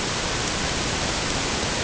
{"label": "ambient", "recorder": "HydroMoth"}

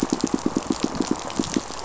{"label": "biophony, pulse", "recorder": "SoundTrap 500"}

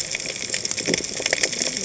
{"label": "biophony, cascading saw", "recorder": "HydroMoth"}
{"label": "biophony", "recorder": "HydroMoth"}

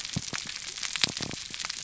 {"label": "biophony", "recorder": "SoundTrap 300"}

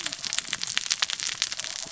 {"label": "biophony, cascading saw", "recorder": "SoundTrap 600 or HydroMoth"}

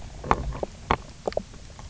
{"label": "biophony, knock croak", "recorder": "SoundTrap 300"}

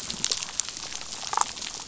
{"label": "biophony, damselfish", "recorder": "SoundTrap 500"}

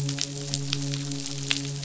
{"label": "biophony, midshipman", "recorder": "SoundTrap 500"}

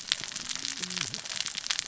{"label": "biophony, cascading saw", "recorder": "SoundTrap 600 or HydroMoth"}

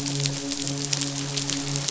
{"label": "biophony, midshipman", "recorder": "SoundTrap 500"}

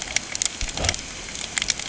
{"label": "ambient", "recorder": "HydroMoth"}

